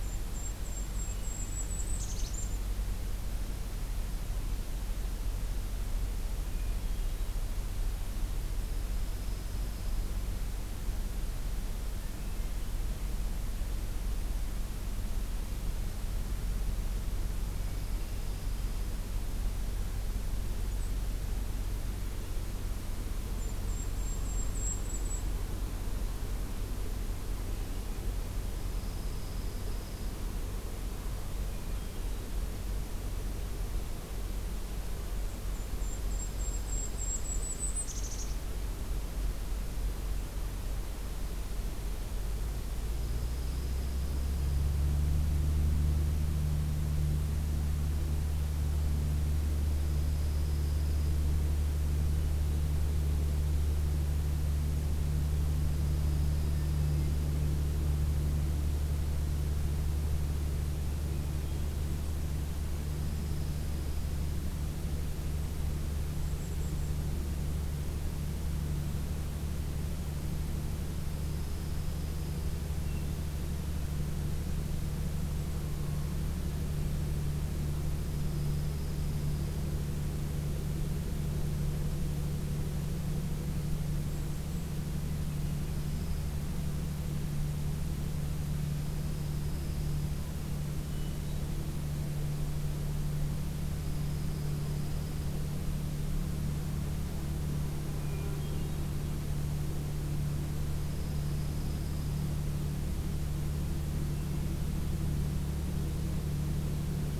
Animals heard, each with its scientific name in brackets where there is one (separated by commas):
Golden-crowned Kinglet (Regulus satrapa), Dark-eyed Junco (Junco hyemalis), Hermit Thrush (Catharus guttatus)